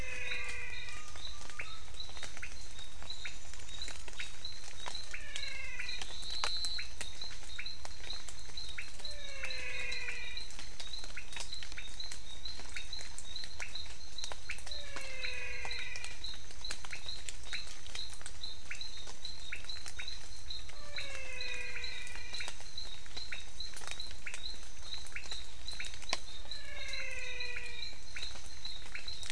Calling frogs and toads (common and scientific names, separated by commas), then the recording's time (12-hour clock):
menwig frog (Physalaemus albonotatus), pointedbelly frog (Leptodactylus podicipinus), Elachistocleis matogrosso
6:00pm